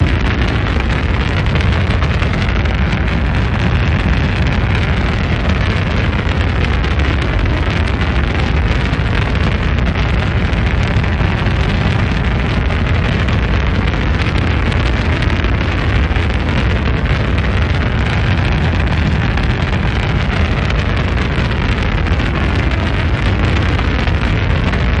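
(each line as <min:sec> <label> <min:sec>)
0:00.0 A rocket launching with a loud and continuous roar. 0:25.0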